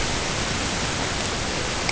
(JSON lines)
{"label": "ambient", "recorder": "HydroMoth"}